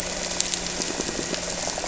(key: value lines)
label: anthrophony, boat engine
recorder: SoundTrap 300

label: biophony
recorder: SoundTrap 300